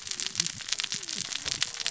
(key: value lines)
label: biophony, cascading saw
recorder: SoundTrap 600 or HydroMoth